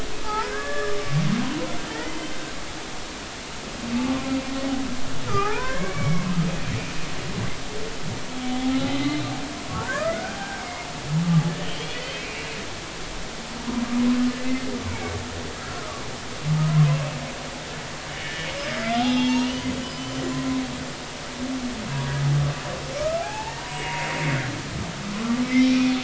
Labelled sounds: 0.2	1.0	humpback whale, 0.80 to 1.9 kHz
1.9	2.2	humpback whale, 1.7 to 2.1 kHz
5.3	6.2	humpback whale, 0.80 to 2.3 kHz
9.0	10.9	humpback whale, 0.86 to 4.2 kHz
11.6	11.8	humpback whale, 2.8 to 3.2 kHz
12.2	12.5	humpback whale, 2.2 to 2.8 kHz
14.9	16.0	humpback whale, 1.1 to 2.4 kHz
18.8	20.2	humpback whale, 0.80 to 6.7 kHz
23.0	24.2	humpback whale, 0.80 to 2.9 kHz
25.1	25.9	humpback whale, 0.99 to 2.5 kHz

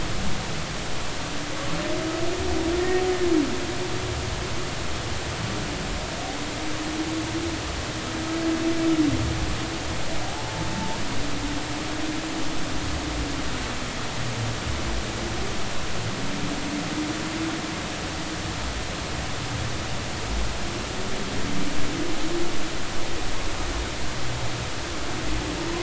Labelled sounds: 10.3	11.0	humpback whale, 0.80 to 0.99 kHz

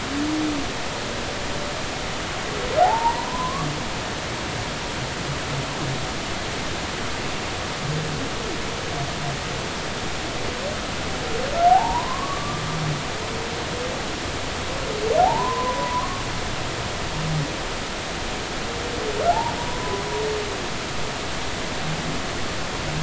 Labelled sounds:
2.8	3.7	humpback whale, 0.80 to 1.2 kHz
11.7	12.6	humpback whale, 0.80 to 1.2 kHz
15.2	16.2	humpback whale, 0.80 to 1.2 kHz
19.3	20.0	humpback whale, 0.80 to 1.1 kHz

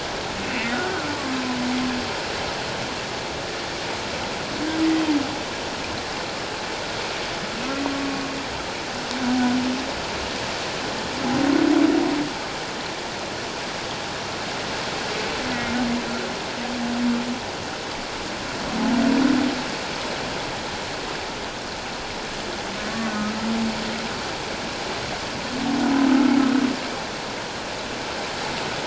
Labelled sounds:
0.7	1.1	humpback whale, 1.3 to 1.6 kHz

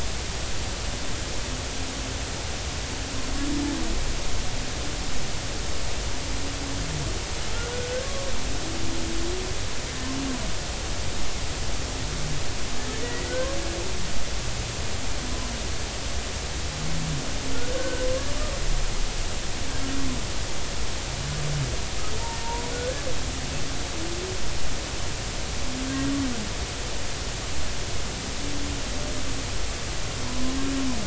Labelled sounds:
7.8	8.1	humpback whale, 1.4 to 1.7 kHz
13.0	13.3	humpback whale, 1.9 to 2.0 kHz
17.7	18.3	humpback whale, 0.99 to 1.6 kHz
22.2	22.6	humpback whale, 0.86 to 0.99 kHz

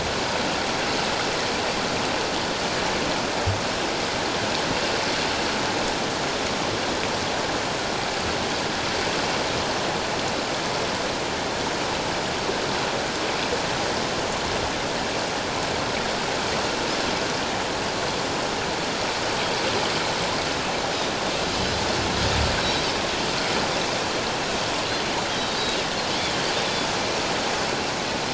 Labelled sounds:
21.5	21.8	Pacific white-sided dolphin, 3.9 to 5.1 kHz

